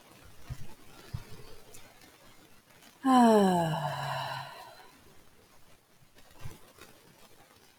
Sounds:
Sigh